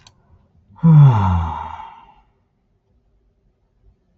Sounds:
Sigh